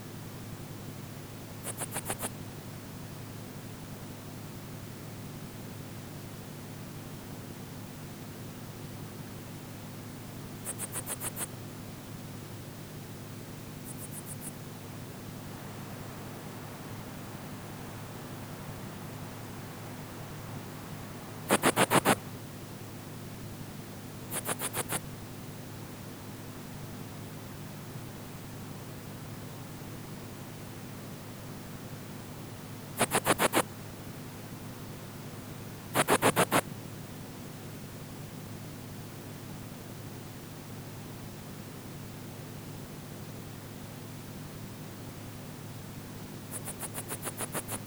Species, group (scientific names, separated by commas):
Phyllomimus inversus, Orthoptera